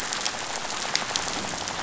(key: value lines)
label: biophony, rattle
recorder: SoundTrap 500